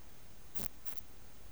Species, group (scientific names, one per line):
Poecilimon nobilis
Orthoptera